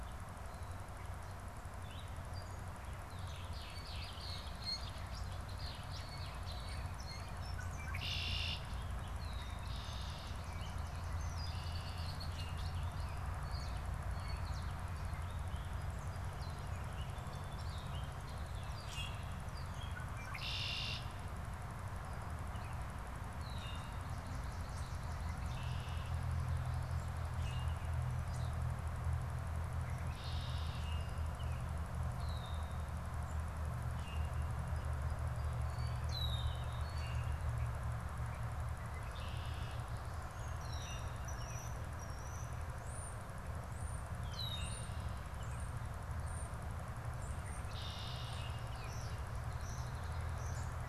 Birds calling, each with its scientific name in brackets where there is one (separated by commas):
European Starling (Sturnus vulgaris), Red-winged Blackbird (Agelaius phoeniceus), Song Sparrow (Melospiza melodia), Gray Catbird (Dumetella carolinensis), Common Grackle (Quiscalus quiscula), Blue Jay (Cyanocitta cristata)